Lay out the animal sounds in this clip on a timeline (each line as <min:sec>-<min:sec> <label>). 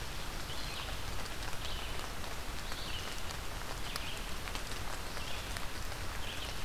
0:00.0-0:06.6 Red-eyed Vireo (Vireo olivaceus)